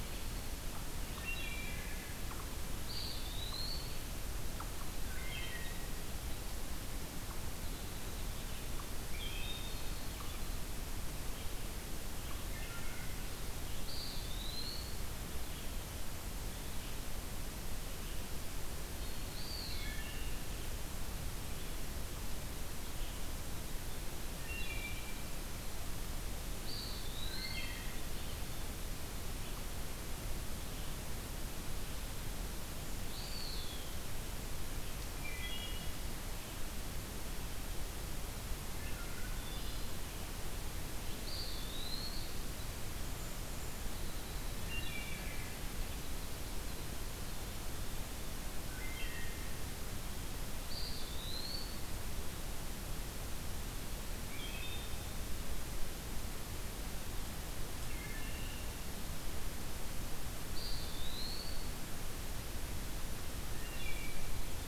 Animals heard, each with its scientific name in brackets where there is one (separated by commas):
Eastern Wood-Pewee (Contopus virens), unknown mammal, Wood Thrush (Hylocichla mustelina)